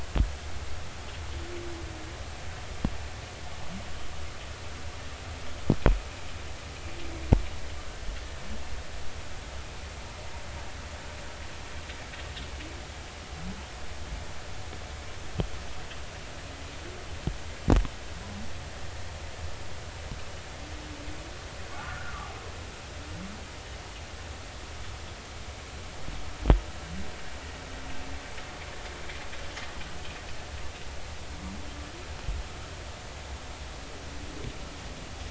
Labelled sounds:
21.7	22.2	humpback whale, 0.99 to 1.6 kHz

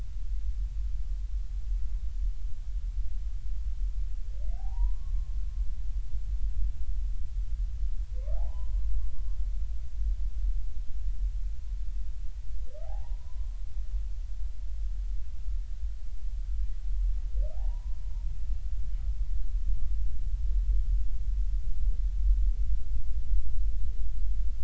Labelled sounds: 4.5	5.4	humpback whale, 0.80 to 1.2 kHz
8.2	9.2	humpback whale, 0.80 to 1.4 kHz
12.8	13.6	humpback whale, 0.80 to 1.1 kHz
17.5	18.0	humpback whale, 0.80 to 1.1 kHz

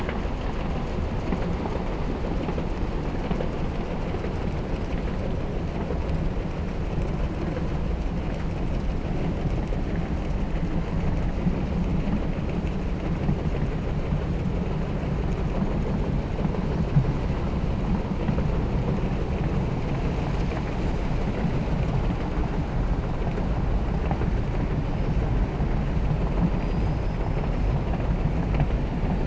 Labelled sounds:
26.5	27.7	killer whale, southern resident, 4.1 to 6.3 kHz

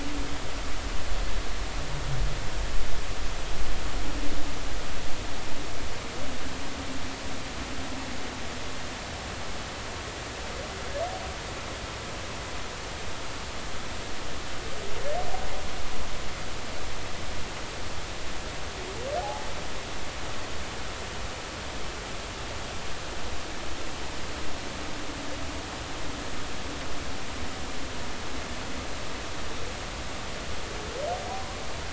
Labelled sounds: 19.2	19.5	humpback whale, 0.80 to 0.90 kHz

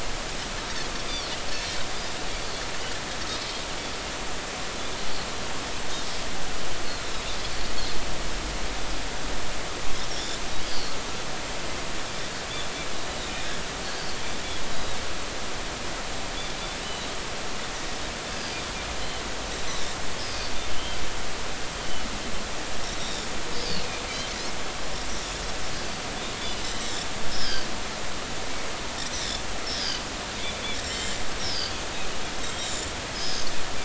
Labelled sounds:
1.6	1.8	Pacific white-sided dolphin, 4.1 to 4.3 kHz
6.8	7.1	Pacific white-sided dolphin, 4.0 to 4.4 kHz
10.1	10.4	Pacific white-sided dolphin, 3.2 to 3.6 kHz
10.7	11.0	Pacific white-sided dolphin, 4.1 to 5.0 kHz
14.7	15.0	Pacific white-sided dolphin, 3.7 to 4.0 kHz
16.8	17.1	Pacific white-sided dolphin, 3.8 to 4.0 kHz
20.7	21.0	Pacific white-sided dolphin, 2.9 to 3.2 kHz
23.0	23.3	Pacific white-sided dolphin, 3.5 to 3.9 kHz
27.3	27.7	Pacific white-sided dolphin, 1.5 to 5.4 kHz
29.8	31.8	Pacific white-sided dolphin, 2.8 to 7.6 kHz
32.6	33.5	Pacific white-sided dolphin, 4.7 to 7.5 kHz

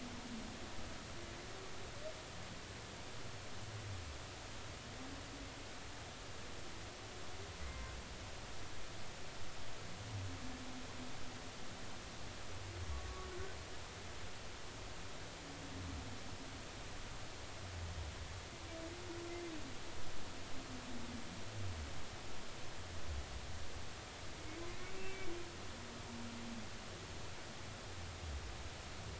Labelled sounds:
7.6	7.9	humpback whale, 0.93 to 2.1 kHz
12.9	13.3	humpback whale, 1.1 to 1.2 kHz
25.1	25.3	humpback whale, 2.2 to 2.3 kHz

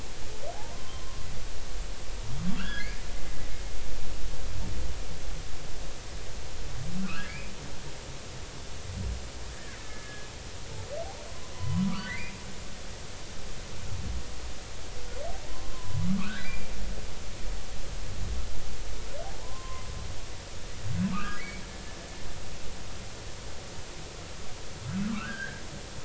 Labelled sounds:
0.7	1.2	humpback whale, 0.93 to 1.1 kHz
2.6	3.0	humpback whale, 1.3 to 1.8 kHz
7.0	7.5	humpback whale, 1.1 to 2.6 kHz
9.5	10.3	killer whale, Bigg's (transient), 1.5 to 2.1 kHz
11.5	12.4	humpback whale, 0.86 to 3.1 kHz
13.0	13.2	humpback whale, 1.4 to 1.6 kHz
15.5	16.7	humpback whale, 0.93 to 2.5 kHz
19.2	19.8	humpback whale, 0.80 to 1.1 kHz
21.1	21.6	humpback whale, 1.1 to 2.4 kHz
25.1	25.6	humpback whale, 0.99 to 1.9 kHz

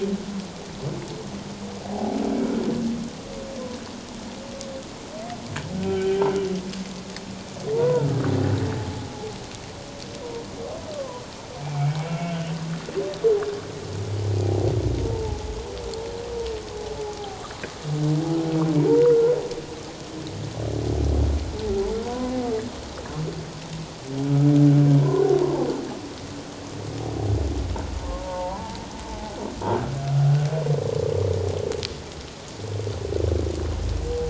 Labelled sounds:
5.9	6.3	humpback whale, 1.5 to 1.6 kHz
7.7	8.1	humpback whale, 0.88 to 1.5 kHz
8.8	9.0	humpback whale, 0.81 to 0.91 kHz
10.9	11.2	humpback whale, 0.94 to 1.3 kHz
12.0	12.4	humpback whale, 1.3 to 2.8 kHz
15.1	15.5	humpback whale, 0.78 to 0.94 kHz
17.2	17.4	humpback whale, 0.78 to 0.84 kHz
18.9	19.3	humpback whale, 0.81 to 1.5 kHz
22.0	22.3	humpback whale, 0.91 to 1.1 kHz
28.2	29.4	humpback whale, 0.78 to 1.0 kHz

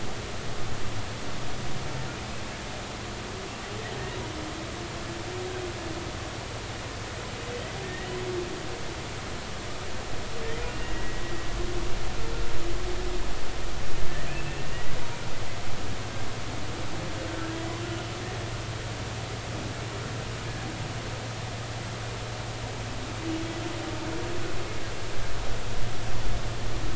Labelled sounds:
7.8	8.1	humpback whale, 1.8 to 2.0 kHz
10.7	11.2	humpback whale, 1.8 to 2.9 kHz
14.3	14.6	humpback whale, 2.6 to 2.8 kHz
17.3	17.8	humpback whale, 1.5 to 2.1 kHz

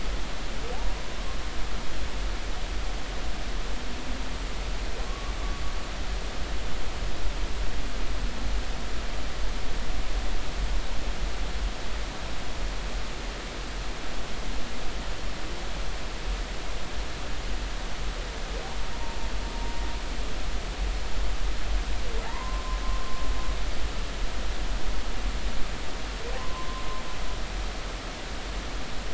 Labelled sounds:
5.1	5.3	humpback whale, 1.1 to 1.2 kHz
22.3	22.8	humpback whale, 0.80 to 1.1 kHz
26.4	26.8	humpback whale, 0.96 to 1.1 kHz

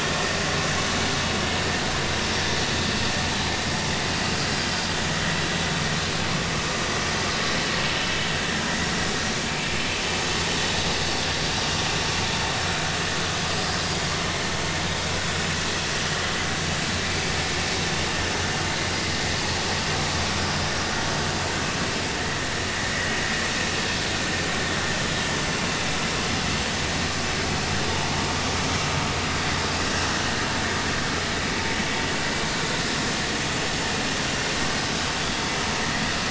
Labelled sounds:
20.4	20.7	vessel noise, 5.0 to 5.2 kHz
22.9	23.2	vessel noise, 1.8 to 2.0 kHz

